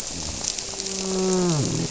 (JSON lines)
{"label": "biophony, grouper", "recorder": "SoundTrap 300"}